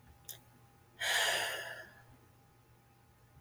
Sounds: Sigh